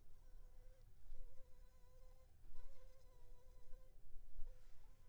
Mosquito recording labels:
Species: Anopheles funestus s.s.; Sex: female; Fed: unfed; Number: one; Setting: cup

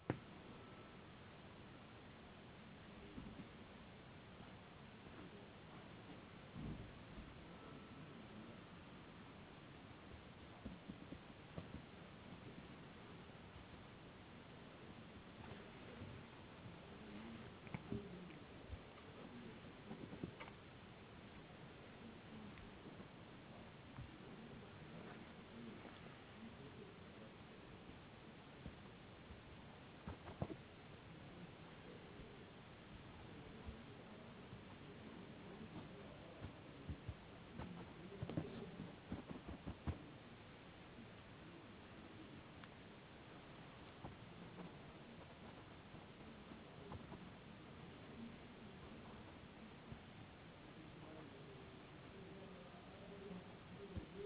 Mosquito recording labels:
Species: no mosquito; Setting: insect culture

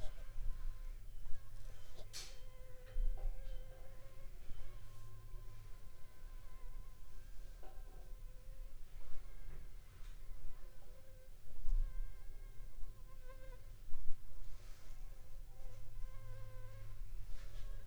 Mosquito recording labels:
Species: Anopheles funestus s.s.; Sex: female; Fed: unfed; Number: one; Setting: cup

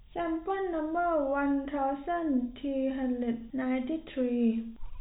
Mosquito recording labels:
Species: no mosquito; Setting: cup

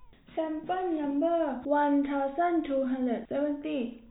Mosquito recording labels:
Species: no mosquito; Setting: cup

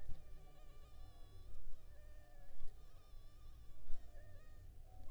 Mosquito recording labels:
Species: Anopheles funestus s.s.; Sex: female; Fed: unfed; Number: one; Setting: cup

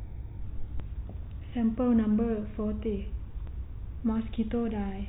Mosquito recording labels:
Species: no mosquito; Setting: cup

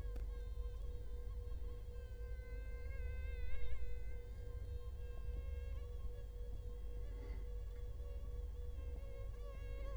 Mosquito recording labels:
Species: Culex quinquefasciatus; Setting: cup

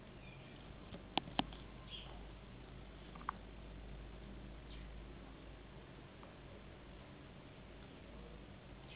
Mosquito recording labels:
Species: Anopheles gambiae s.s.; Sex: female; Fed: unfed; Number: one; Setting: insect culture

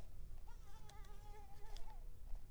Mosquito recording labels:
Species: Mansonia africanus; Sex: female; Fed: unfed; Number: one; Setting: cup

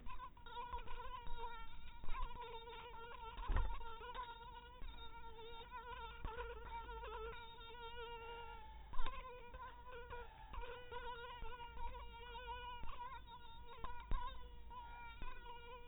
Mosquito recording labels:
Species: mosquito; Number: one; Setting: cup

